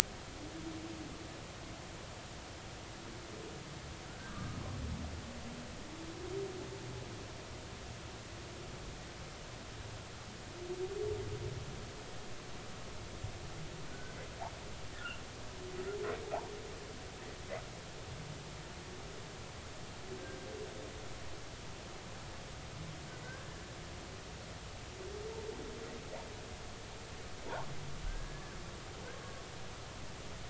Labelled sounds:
4.3	4.6	humpback whale, 1.1 to 1.3 kHz
13.9	15.2	humpback whale, 1.3 to 1.7 kHz
23.2	23.6	humpback whale, 1.4 to 1.8 kHz
28.0	28.6	humpback whale, 1.5 to 1.8 kHz

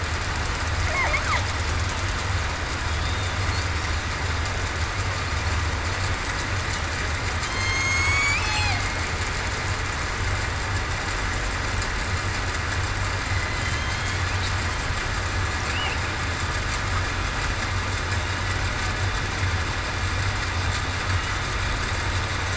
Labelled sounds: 7.4	8.8	killer whale, southern resident, 0.68 to 8.0 kHz
13.6	14.3	killer whale, southern resident, 3.1 to 3.5 kHz

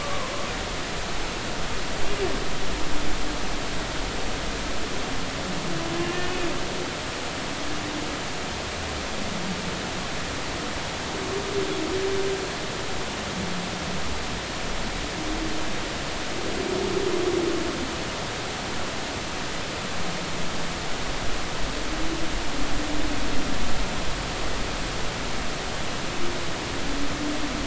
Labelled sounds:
0.0	0.3	humpback whale, 0.96 to 1.2 kHz
6.0	6.5	humpback whale, 2.4 to 2.9 kHz

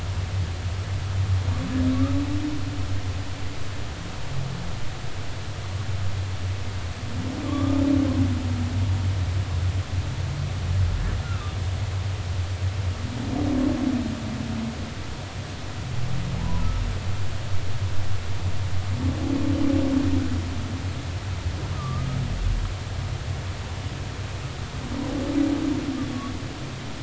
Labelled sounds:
7.4	7.8	humpback whale, 1.0 to 1.2 kHz
11.2	11.6	humpback whale, 1.1 to 1.5 kHz
16.4	16.7	humpback whale, 0.80 to 1.1 kHz
21.7	22.1	humpback whale, 1.1 to 1.3 kHz

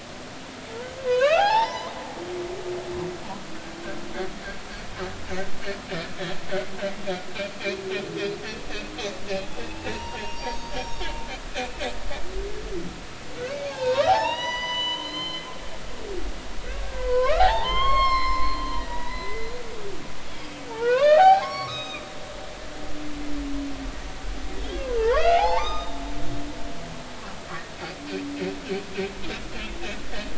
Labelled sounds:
1.1	1.9	humpback whale, 0.80 to 6.0 kHz
9.5	11.1	humpback whale, 0.80 to 5.7 kHz
13.4	15.5	humpback whale, 0.80 to 7.0 kHz
16.8	19.5	humpback whale, 0.80 to 7.6 kHz
20.7	22.4	humpback whale, 0.80 to 6.4 kHz
24.6	26.0	humpback whale, 0.80 to 5.1 kHz

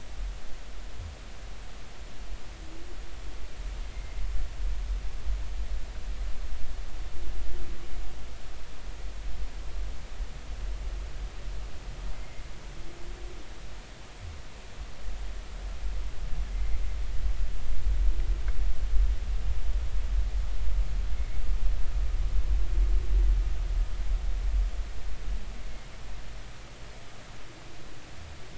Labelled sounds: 12.1	12.4	humpback whale, 2.0 to 2.2 kHz

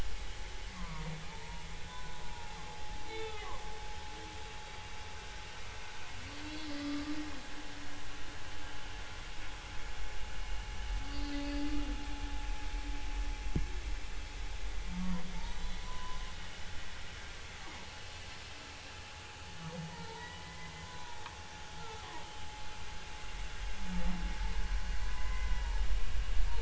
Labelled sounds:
0.7	2.2	humpback whale, 0.80 to 1.6 kHz
3.1	3.5	humpback whale, 1.2 to 3.6 kHz
6.4	6.7	humpback whale, 3.9 to 4.1 kHz
11.1	11.7	humpback whale, 4.2 to 4.7 kHz
15.0	16.2	humpback whale, 0.86 to 4.0 kHz
19.9	21.2	humpback whale, 0.86 to 2.1 kHz
21.8	22.2	humpback whale, 0.90 to 1.4 kHz
25.0	25.6	humpback whale, 0.96 to 2.1 kHz

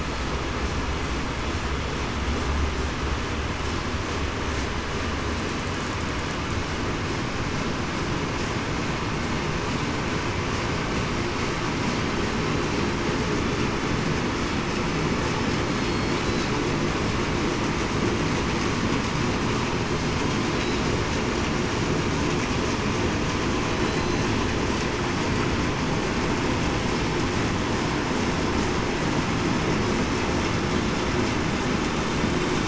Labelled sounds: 15.7	16.1	killer whale, southern resident, 4.3 to 4.4 kHz
23.8	24.2	killer whale, southern resident, 4.0 to 4.1 kHz

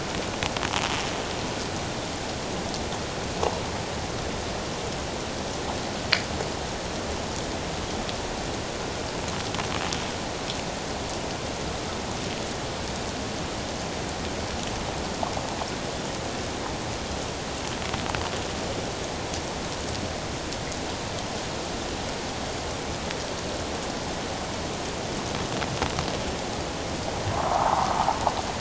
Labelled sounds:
27.5	28.0	water noise, 0.78 to 1.4 kHz

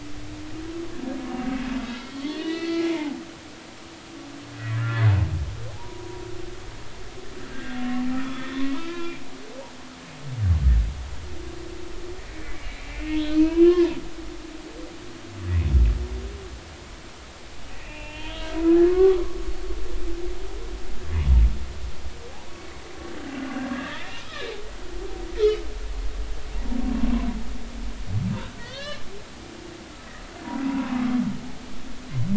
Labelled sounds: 1.9	3.2	humpback whale, 0.80 to 4.6 kHz
4.7	6.2	humpback whale, 0.80 to 1.9 kHz
7.5	9.2	humpback whale, 1.2 to 3.9 kHz
12.9	14.0	humpback whale, 0.90 to 3.3 kHz
17.8	19.2	humpback whale, 0.86 to 3.6 kHz
23.7	24.6	humpback whale, 1.5 to 2.6 kHz
28.6	29.0	humpback whale, 1.1 to 4.2 kHz
30.7	31.0	humpback whale, 0.93 to 1.2 kHz

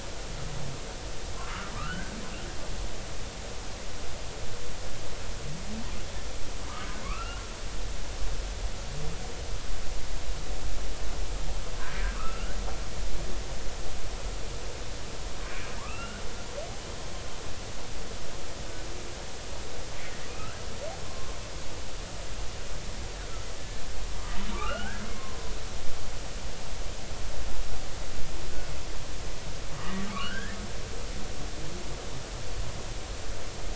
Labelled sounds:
1.8	2.1	humpback whale, 1.1 to 1.7 kHz
7.0	7.4	humpback whale, 1.0 to 3.0 kHz
12.2	12.6	humpback whale, 1.1 to 1.6 kHz
15.8	17.2	humpback whale, 0.86 to 2.9 kHz
20.3	20.5	humpback whale, 2.4 to 2.9 kHz
21.0	21.4	humpback whale, 0.99 to 1.1 kHz
23.6	25.5	humpback whale, 0.90 to 3.0 kHz
29.8	30.6	humpback whale, 1.1 to 3.4 kHz

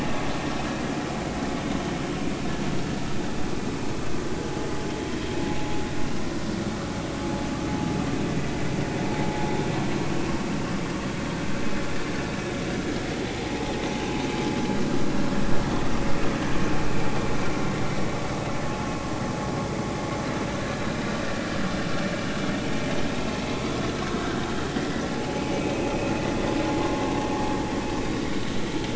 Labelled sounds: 13.4	13.7	vessel noise, 0.80 to 0.90 kHz
24.2	24.5	vessel noise, 1.4 to 1.6 kHz
25.1	25.7	vessel noise, 0.80 to 2.6 kHz

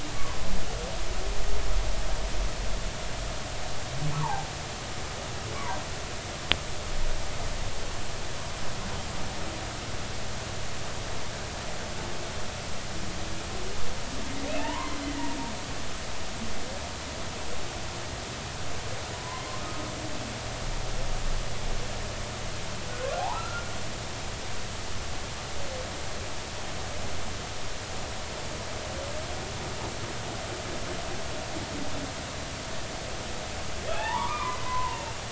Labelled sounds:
0.1	0.4	humpback whale, 0.96 to 1.2 kHz
4.1	4.4	humpback whale, 0.80 to 1.2 kHz
14.5	15.3	humpback whale, 0.83 to 3.1 kHz
19.1	19.4	humpback whale, 0.86 to 1.1 kHz
23.2	23.7	humpback whale, 0.80 to 1.5 kHz
33.9	35.2	humpback whale, 0.80 to 2.8 kHz

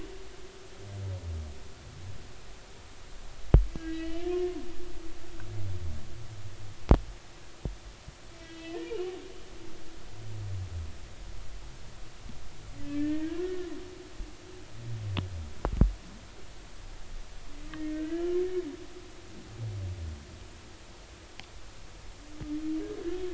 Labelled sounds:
3.8	4.5	humpback whale, 1.9 to 3.1 kHz
8.3	9.1	humpback whale, 1.9 to 3.3 kHz
12.8	13.7	humpback whale, 1.4 to 2.8 kHz
17.7	18.3	humpback whale, 1.5 to 3.0 kHz

